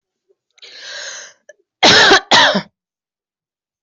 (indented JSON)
{
  "expert_labels": [
    {
      "quality": "ok",
      "cough_type": "dry",
      "dyspnea": false,
      "wheezing": false,
      "stridor": false,
      "choking": false,
      "congestion": false,
      "nothing": true,
      "diagnosis": "healthy cough",
      "severity": "pseudocough/healthy cough"
    }
  ],
  "age": 41,
  "gender": "female",
  "respiratory_condition": false,
  "fever_muscle_pain": false,
  "status": "COVID-19"
}